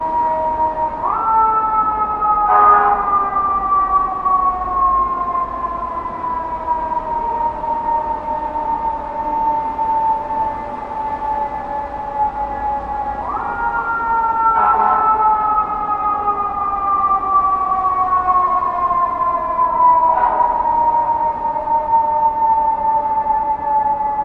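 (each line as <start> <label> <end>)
0.0 A fire truck siren sounds once in the distance and echoes. 24.2
2.5 A fire truck horn honks once in the distance. 3.0
14.5 A fire truck honks twice in the distance. 15.2
20.1 A fire truck horn honks once in the distance. 20.5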